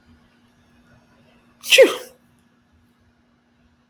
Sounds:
Sneeze